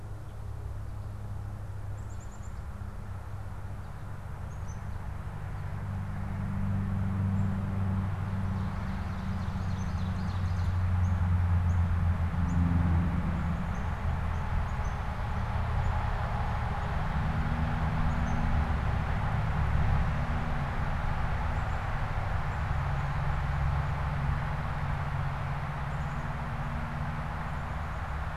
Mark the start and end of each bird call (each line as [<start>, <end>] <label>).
[1.65, 2.65] Black-capped Chickadee (Poecile atricapillus)
[4.35, 4.95] Black-capped Chickadee (Poecile atricapillus)
[8.35, 11.05] Ovenbird (Seiurus aurocapilla)
[9.15, 19.05] Black-capped Chickadee (Poecile atricapillus)